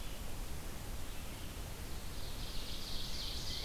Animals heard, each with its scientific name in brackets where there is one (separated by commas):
Red-eyed Vireo (Vireo olivaceus), Tufted Titmouse (Baeolophus bicolor), Ovenbird (Seiurus aurocapilla)